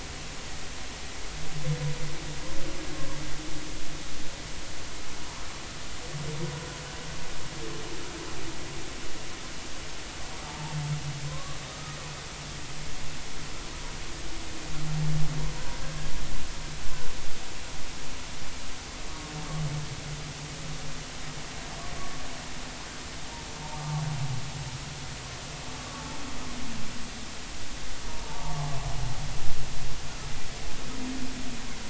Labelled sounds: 10.4	12.0	humpback whale, 0.83 to 1.3 kHz
23.7	24.0	humpback whale, 1.1 to 1.2 kHz
28.2	28.7	humpback whale, 0.80 to 0.99 kHz

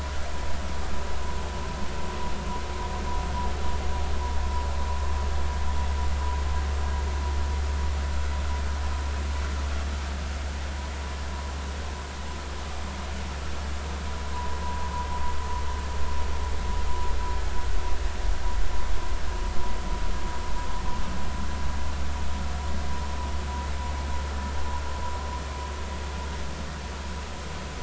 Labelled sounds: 14.3	14.6	vessel noise, 0.93 to 1.0 kHz

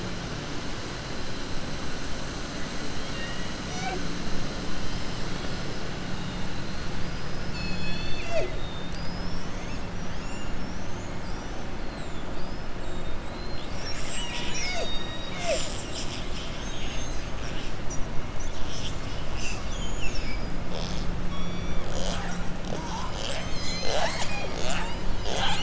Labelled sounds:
2.9	3.5	killer whale, southern resident, 1.4 to 4.7 kHz

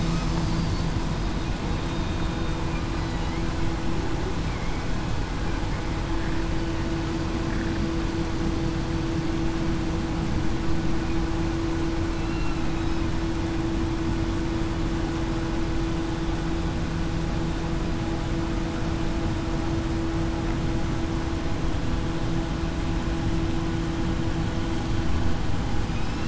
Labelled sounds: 4.5	4.9	killer whale, southern resident, 2.1 to 2.3 kHz
12.1	12.6	killer whale, southern resident, 2.6 to 2.8 kHz

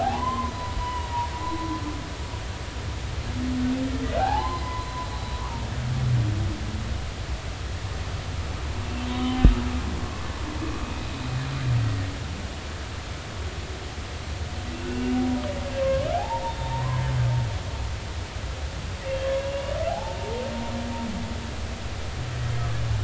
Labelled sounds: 0.0	0.5	humpback whale, 0.80 to 3.2 kHz
0.8	1.3	humpback whale, 0.90 to 1.1 kHz
4.2	4.9	humpback whale, 0.80 to 4.2 kHz
9.1	9.5	humpback whale, 0.96 to 3.8 kHz
14.9	17.0	humpback whale, 0.80 to 3.7 kHz
19.4	20.5	humpback whale, 0.80 to 2.9 kHz

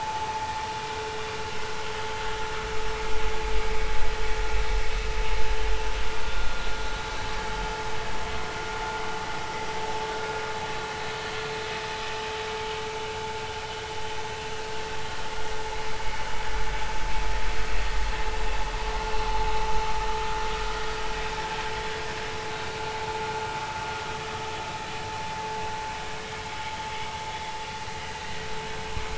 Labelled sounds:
28.2	28.5	vessel noise, 1.8 to 2.1 kHz

